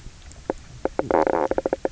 {"label": "biophony, knock croak", "recorder": "SoundTrap 300"}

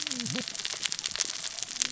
{"label": "biophony, cascading saw", "recorder": "SoundTrap 600 or HydroMoth"}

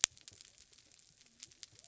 {"label": "biophony", "recorder": "SoundTrap 300"}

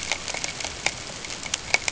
{"label": "ambient", "recorder": "HydroMoth"}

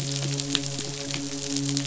{"label": "biophony, midshipman", "recorder": "SoundTrap 500"}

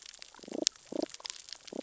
{"label": "biophony, damselfish", "recorder": "SoundTrap 600 or HydroMoth"}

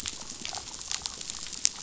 {"label": "biophony, damselfish", "recorder": "SoundTrap 500"}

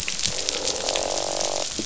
{"label": "biophony, croak", "recorder": "SoundTrap 500"}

